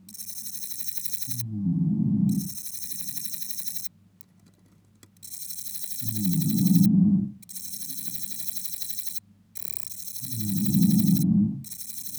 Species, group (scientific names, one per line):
Parnassiana parnassica
Orthoptera